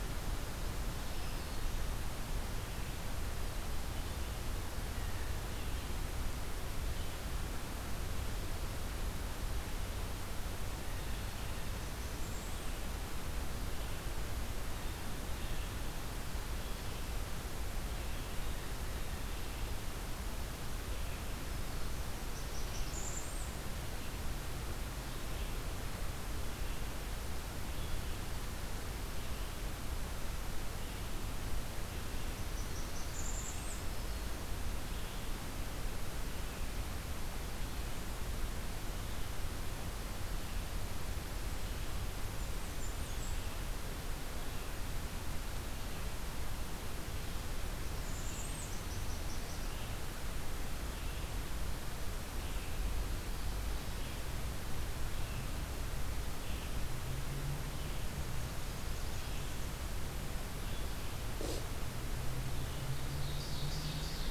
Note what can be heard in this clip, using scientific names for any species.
Setophaga virens, Setophaga fusca, Vireo olivaceus, Seiurus aurocapilla